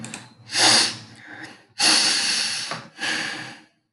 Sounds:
Sniff